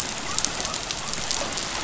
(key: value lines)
label: biophony
recorder: SoundTrap 500